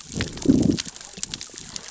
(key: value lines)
label: biophony, growl
recorder: SoundTrap 600 or HydroMoth